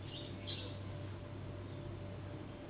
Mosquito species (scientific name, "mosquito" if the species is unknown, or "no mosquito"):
Anopheles gambiae s.s.